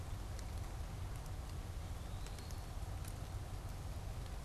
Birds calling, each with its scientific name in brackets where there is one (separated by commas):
Eastern Wood-Pewee (Contopus virens)